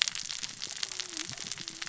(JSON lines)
{"label": "biophony, cascading saw", "recorder": "SoundTrap 600 or HydroMoth"}